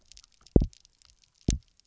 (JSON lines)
{"label": "biophony, double pulse", "recorder": "SoundTrap 300"}